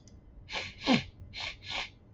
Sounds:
Sniff